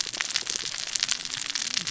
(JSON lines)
{"label": "biophony, cascading saw", "recorder": "SoundTrap 600 or HydroMoth"}